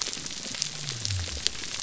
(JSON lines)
{"label": "biophony", "recorder": "SoundTrap 300"}